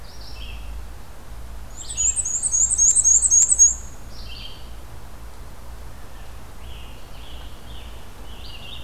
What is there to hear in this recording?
Red-eyed Vireo, Black-and-white Warbler, Eastern Wood-Pewee, Scarlet Tanager